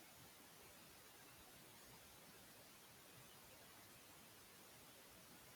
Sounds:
Sneeze